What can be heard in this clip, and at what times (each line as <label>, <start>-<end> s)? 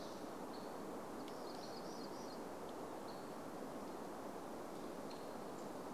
warbler song, 0-4 s
Hammond's Flycatcher call, 0-6 s